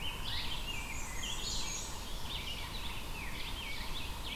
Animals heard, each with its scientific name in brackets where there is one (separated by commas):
Yellow-bellied Sapsucker (Sphyrapicus varius), Black-and-white Warbler (Mniotilta varia), Rose-breasted Grosbeak (Pheucticus ludovicianus), Red-eyed Vireo (Vireo olivaceus)